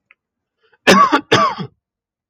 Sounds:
Cough